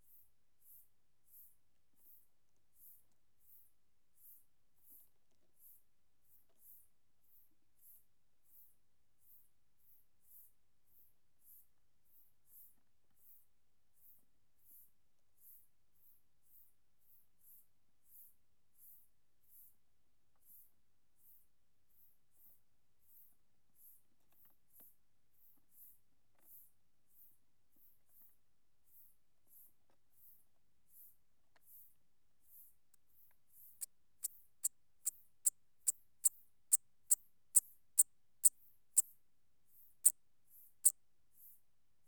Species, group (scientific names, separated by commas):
Eupholidoptera smyrnensis, Orthoptera